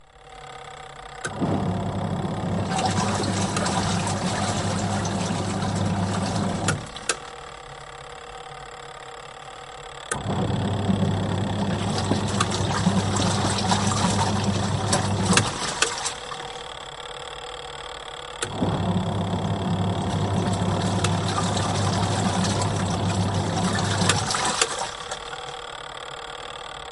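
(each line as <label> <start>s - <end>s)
A steady mechanical rattling. 0.0s - 26.9s
A dull, steady mechanical sound like a medium-sized engine. 1.2s - 7.2s
A dull splashing sound of water. 2.5s - 6.9s
A dull, steady mechanical sound like a medium-sized engine. 10.0s - 15.7s
A dull splashing sound of water. 11.6s - 16.3s
A dull, steady mechanical sound like a medium-sized engine. 18.6s - 24.3s
A dull splashing sound of water. 20.2s - 26.9s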